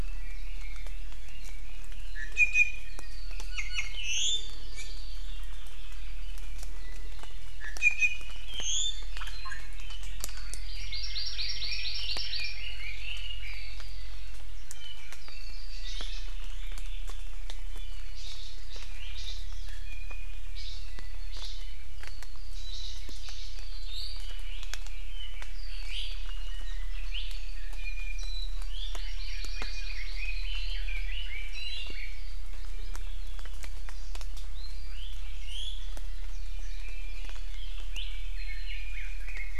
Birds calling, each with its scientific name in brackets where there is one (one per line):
Red-billed Leiothrix (Leiothrix lutea)
Hawaii Amakihi (Chlorodrepanis virens)
Warbling White-eye (Zosterops japonicus)
Iiwi (Drepanis coccinea)